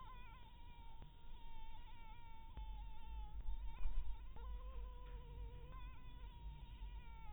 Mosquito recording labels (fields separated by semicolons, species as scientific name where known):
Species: Anopheles dirus; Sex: female; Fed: blood-fed; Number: one; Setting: cup